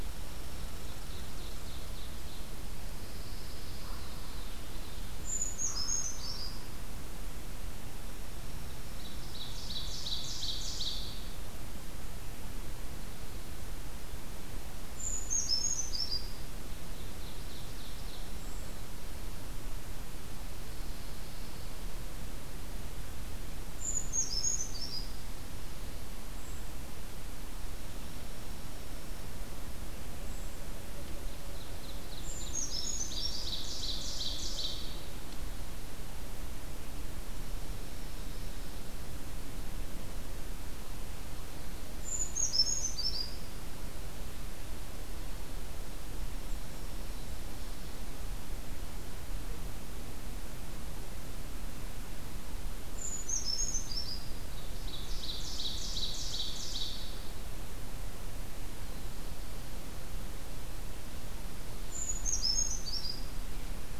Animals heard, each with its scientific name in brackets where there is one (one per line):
Ovenbird (Seiurus aurocapilla)
Dark-eyed Junco (Junco hyemalis)
Brown Creeper (Certhia americana)
Pine Warbler (Setophaga pinus)
Common Raven (Corvus corax)